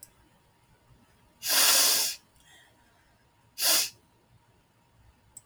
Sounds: Sniff